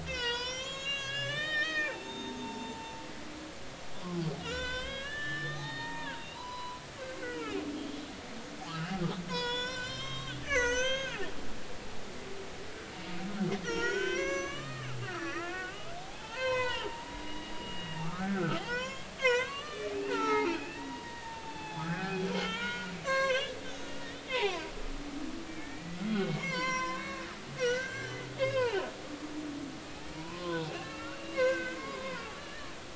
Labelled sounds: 0.0	2.9	humpback whale, 0.80 to 8.0 kHz
4.4	8.0	humpback whale, 0.86 to 7.2 kHz
8.7	11.2	humpback whale, 0.86 to 7.4 kHz
13.6	24.6	humpback whale, 0.80 to 7.6 kHz
25.6	28.8	humpback whale, 0.80 to 7.6 kHz
29.8	32.7	humpback whale, 0.93 to 2.9 kHz

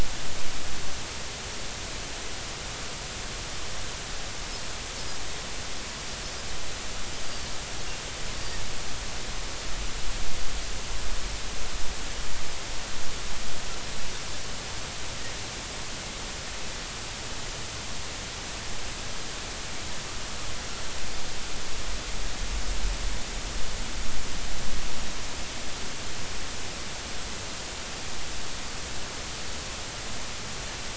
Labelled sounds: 7.2	7.5	Pacific white-sided dolphin, 4.4 to 4.9 kHz

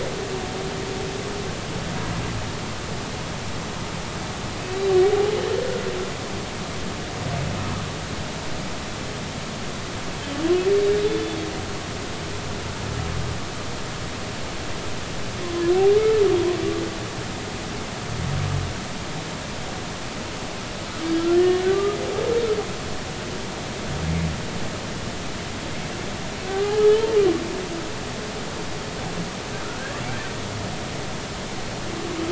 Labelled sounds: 5.0	5.3	humpback whale, 0.80 to 0.86 kHz
11.0	11.4	humpback whale, 3.4 to 3.6 kHz
21.3	22.0	humpback whale, 1.1 to 1.9 kHz
26.5	27.2	humpback whale, 0.80 to 3.2 kHz
29.6	30.0	humpback whale, 1.3 to 1.8 kHz

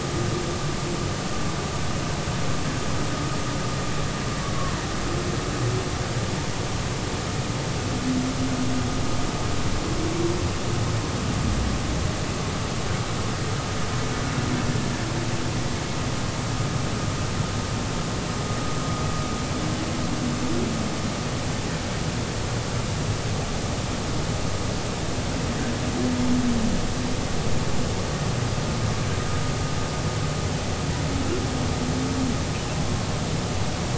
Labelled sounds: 4.6	4.8	humpback whale, 0.90 to 1.2 kHz

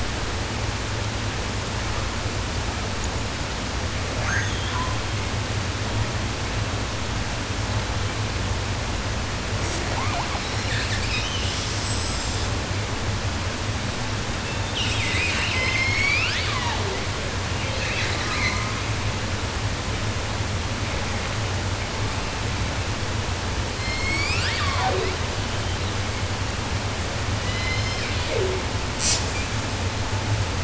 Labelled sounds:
3.9	5.2	killer whale, 0.10 to 6.7 kHz
9.6	12.6	killer whale, 0.21 to 8.0 kHz
14.3	17.4	killer whale, 0.23 to 8.0 kHz
17.5	18.9	killer whale, southern resident, call S10 and call S04, 0.10 to 8.0 kHz
23.5	26.3	killer whale, 0.07 to 8.0 kHz
27.3	28.7	killer whale, southern resident, J pod, call S01, 0.10 to 7.6 kHz
29.0	29.2	killer whale, southern resident, J pod, call S05, 1.7 to 8.0 kHz

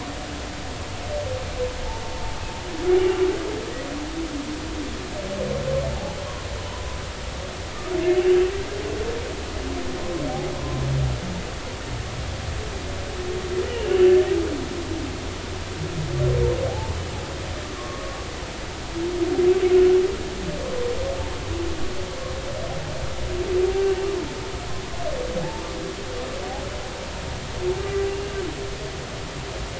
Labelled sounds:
5.9	6.2	humpback whale, 0.80 to 0.99 kHz
13.7	13.9	humpback whale, 2.7 to 3.0 kHz
16.7	16.9	humpback whale, 0.80 to 0.93 kHz
17.8	18.0	humpback whale, 1.0 to 1.2 kHz
19.7	20.0	humpback whale, 1.4 to 1.6 kHz
27.8	28.3	humpback whale, 1.9 to 2.8 kHz

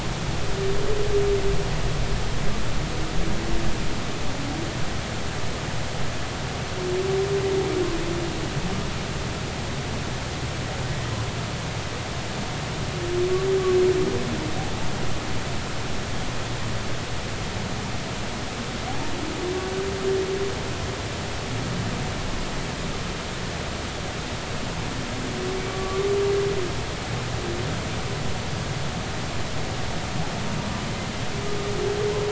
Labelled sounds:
25.7	26.1	humpback whale, 1.1 to 1.2 kHz

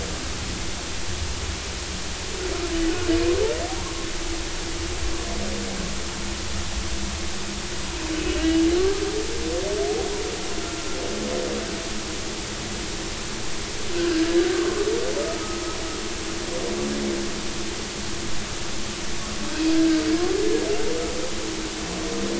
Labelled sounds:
10.6	10.9	humpback whale, 1.3 to 1.4 kHz
14.0	14.9	humpback whale, 1.0 to 1.8 kHz
19.7	20.0	humpback whale, 1.5 to 1.7 kHz

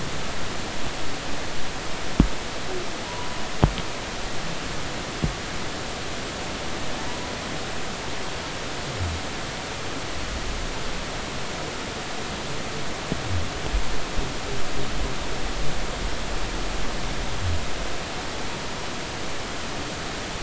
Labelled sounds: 3.1	3.4	humpback whale, 0.93 to 1.0 kHz

